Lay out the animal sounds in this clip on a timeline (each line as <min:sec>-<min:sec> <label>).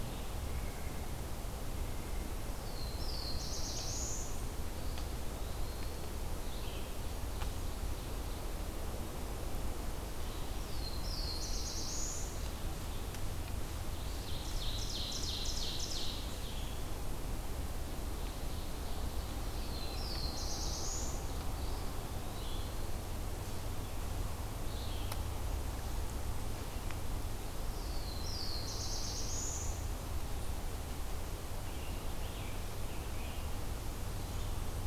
0:00.3-0:01.2 White-breasted Nuthatch (Sitta carolinensis)
0:01.6-0:02.4 White-breasted Nuthatch (Sitta carolinensis)
0:02.4-0:04.4 Black-throated Blue Warbler (Setophaga caerulescens)
0:04.6-0:06.3 Eastern Wood-Pewee (Contopus virens)
0:06.3-0:25.1 Red-eyed Vireo (Vireo olivaceus)
0:06.9-0:08.5 Ovenbird (Seiurus aurocapilla)
0:10.3-0:12.5 Black-throated Blue Warbler (Setophaga caerulescens)
0:13.9-0:16.5 Ovenbird (Seiurus aurocapilla)
0:17.9-0:19.9 Ovenbird (Seiurus aurocapilla)
0:19.3-0:21.5 Black-throated Blue Warbler (Setophaga caerulescens)
0:21.5-0:23.0 Eastern Wood-Pewee (Contopus virens)
0:27.3-0:29.8 Black-throated Blue Warbler (Setophaga caerulescens)
0:31.5-0:33.6 Scarlet Tanager (Piranga olivacea)